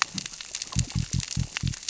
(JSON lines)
{"label": "biophony", "recorder": "SoundTrap 600 or HydroMoth"}